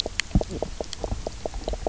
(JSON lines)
{"label": "biophony, knock croak", "recorder": "SoundTrap 300"}